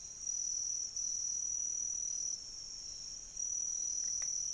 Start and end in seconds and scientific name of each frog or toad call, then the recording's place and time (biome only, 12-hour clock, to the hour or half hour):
none
Cerrado, ~3am